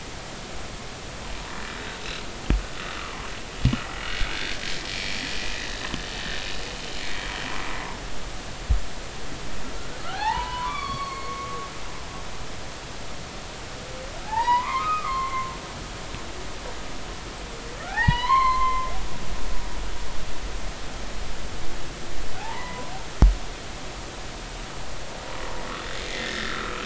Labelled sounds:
1.7	2.0	humpback whale, 3.6 to 3.9 kHz
3.0	3.3	humpback whale, 0.99 to 1.4 kHz
7.0	7.2	humpback whale, 2.2 to 2.3 kHz
10.0	11.7	humpback whale, 0.80 to 4.6 kHz
14.3	15.5	humpback whale, 0.80 to 5.0 kHz
17.8	18.9	humpback whale, 0.80 to 5.0 kHz
22.4	22.9	humpback whale, 0.80 to 2.1 kHz
26.0	26.8	humpback whale, 1.2 to 2.1 kHz

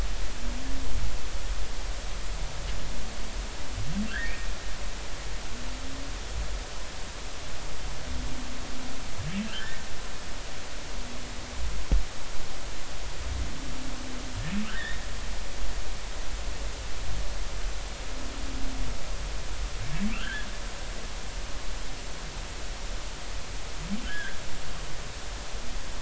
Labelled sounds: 4.1	4.5	humpback whale, 1.3 to 2.0 kHz
9.4	9.8	humpback whale, 1.3 to 1.9 kHz
14.6	15.0	humpback whale, 1.2 to 2.0 kHz
20.1	20.5	humpback whale, 1.2 to 1.9 kHz
24.0	24.4	humpback whale, 1.3 to 2.0 kHz

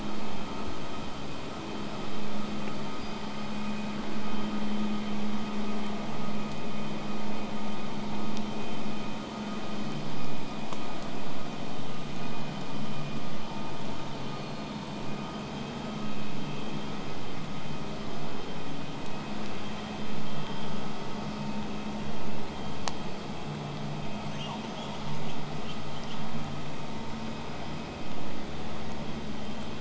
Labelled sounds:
2.7	3.7	killer whale, southern resident, whistle, 4.7 to 8.0 kHz
5.0	10.0	vessel noise, 0 to 8.0 kHz
24.2	26.3	killer whale, southern resident, L pod, call S18, 1.2 to 8.0 kHz

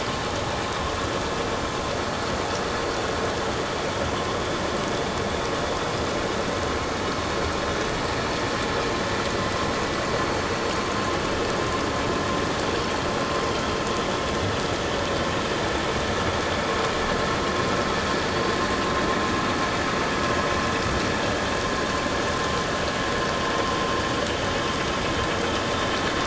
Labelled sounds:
4.1	4.4	vessel noise, 0.94 to 1.1 kHz

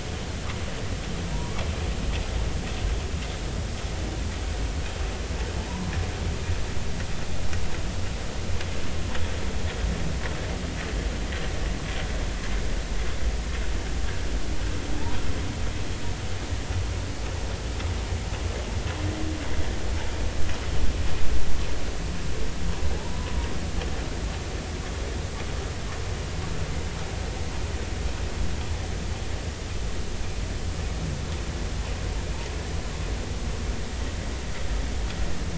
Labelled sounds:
5.6	5.9	humpback whale, 0.83 to 1.1 kHz
23.0	23.3	humpback whale, 0.80 to 1.1 kHz

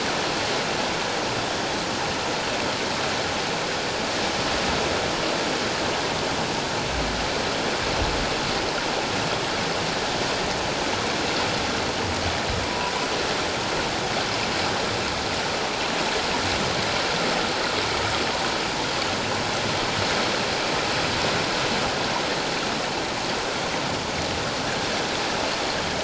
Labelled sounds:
12.6	12.9	humpback whale, 0.91 to 1.1 kHz

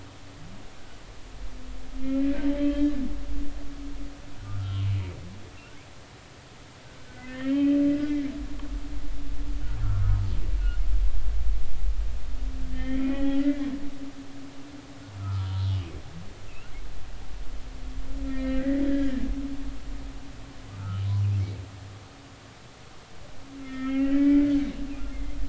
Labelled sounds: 2.2	2.9	humpback whale, 1.5 to 3.3 kHz
4.4	4.9	humpback whale, 1.2 to 2.9 kHz
7.1	8.3	humpback whale, 1.4 to 3.2 kHz
9.8	10.2	humpback whale, 1.1 to 1.5 kHz
12.7	13.6	humpback whale, 0.80 to 3.4 kHz
15.2	15.7	humpback whale, 0.90 to 1.5 kHz
16.5	16.7	humpback whale, 2.5 to 2.9 kHz
18.3	19.3	humpback whale, 1.3 to 2.2 kHz
20.8	21.0	humpback whale, 1.2 to 1.5 kHz
23.6	24.5	humpback whale, 1.2 to 3.3 kHz

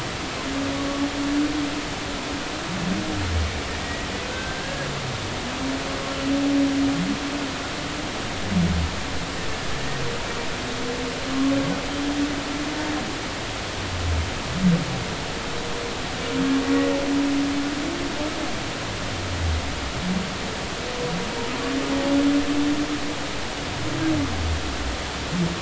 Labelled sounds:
3.8	4.9	humpback whale, 1.5 to 2.0 kHz

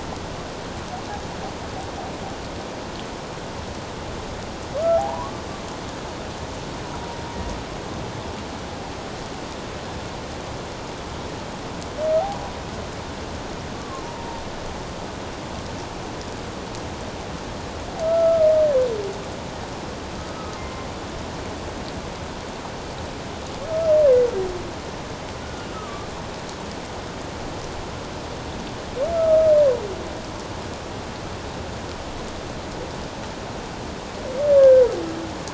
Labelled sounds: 5.0	5.4	humpback whale, 0.78 to 1.2 kHz
13.8	14.4	humpback whale, 0.84 to 1.2 kHz
18.0	18.5	humpback whale, 1.2 to 1.4 kHz
20.6	20.9	humpback whale, 1.0 to 1.1 kHz
23.6	23.9	humpback whale, 1.2 to 1.4 kHz
25.4	26.1	humpback whale, 1.1 to 1.5 kHz
29.1	29.4	humpback whale, 1.2 to 1.4 kHz
34.6	34.8	humpback whale, 1.5 to 1.7 kHz

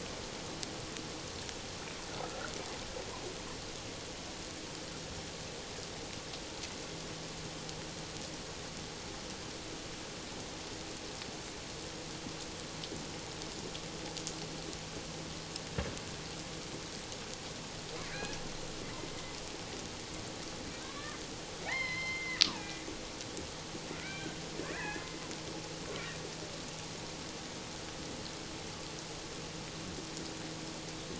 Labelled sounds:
2.2	2.5	water noise, 1.2 to 1.6 kHz
18.1	18.4	killer whale, Bigg's (transient), call T01, 1.4 to 1.8 kHz
20.8	21.2	killer whale, Bigg's (transient), call T01, 1.0 to 1.2 kHz
21.6	22.8	killer whale, Bigg's (transient), call T02, 0.78 to 4.3 kHz
24.0	24.4	killer whale, Bigg's (transient), call T01, 1.4 to 2.4 kHz
24.6	25.0	killer whale, Bigg's (transient), 1.5 to 2.1 kHz

